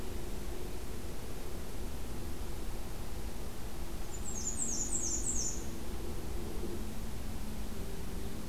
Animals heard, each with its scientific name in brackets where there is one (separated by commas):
Black-and-white Warbler (Mniotilta varia)